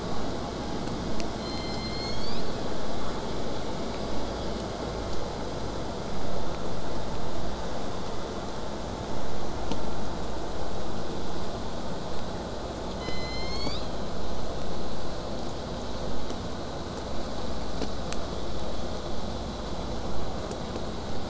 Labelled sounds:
1.4	2.8	killer whale, southern resident, J pod, call S01, 1.5 to 8.0 kHz
13.0	14.2	killer whale, southern resident, J pod, call S01, 1.0 to 8.0 kHz

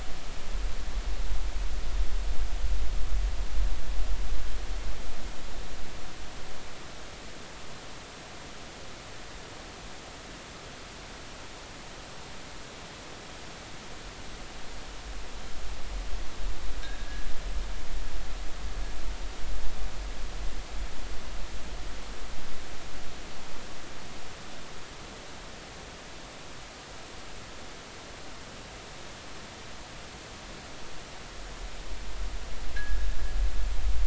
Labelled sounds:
16.8	17.3	fishing gear, 1.5 to 1.8 kHz
32.8	33.1	fishing gear, 1.6 to 1.8 kHz

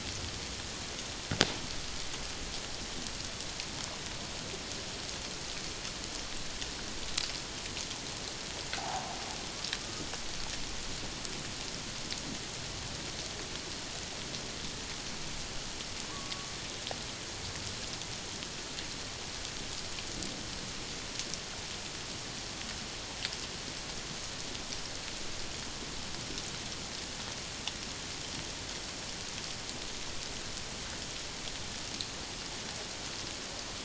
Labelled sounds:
16.1	16.5	killer whale, Bigg's (transient), 0.97 to 1.2 kHz

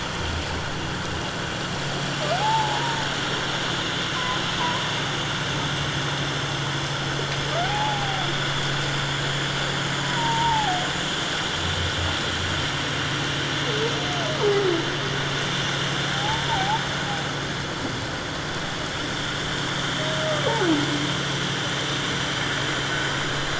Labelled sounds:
2.3	3.0	humpback whale, 0.78 to 1.0 kHz
7.6	8.3	humpback whale, 0.78 to 0.91 kHz
10.0	10.9	humpback whale, 0.78 to 1.1 kHz
14.4	14.7	humpback whale, 0.78 to 0.97 kHz
16.1	16.8	humpback whale, 0.78 to 1.0 kHz

